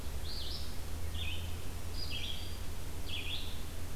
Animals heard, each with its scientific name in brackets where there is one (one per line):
Red-eyed Vireo (Vireo olivaceus)